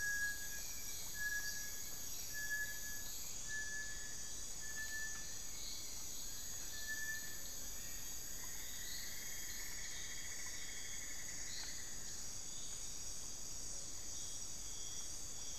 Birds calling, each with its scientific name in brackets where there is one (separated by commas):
Black-billed Thrush (Turdus ignobilis), Cinnamon-throated Woodcreeper (Dendrexetastes rufigula), Long-billed Woodcreeper (Nasica longirostris), Little Tinamou (Crypturellus soui)